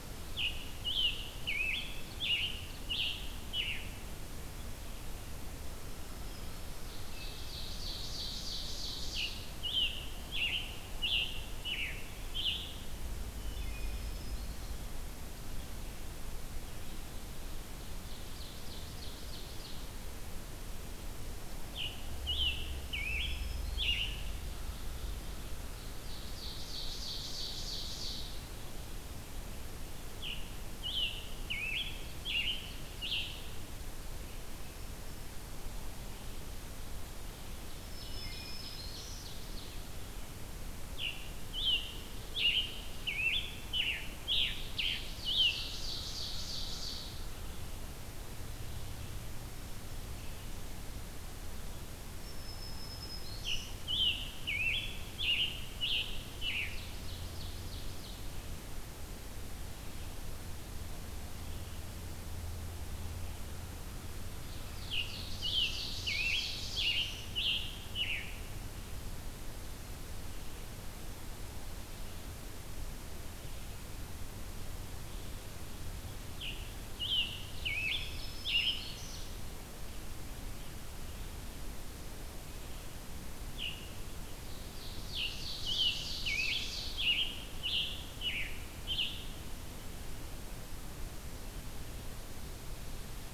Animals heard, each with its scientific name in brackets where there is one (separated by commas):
Scarlet Tanager (Piranga olivacea), Ovenbird (Seiurus aurocapilla), Black-throated Green Warbler (Setophaga virens), Wood Thrush (Hylocichla mustelina)